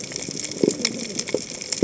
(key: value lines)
label: biophony, cascading saw
recorder: HydroMoth

label: biophony
recorder: HydroMoth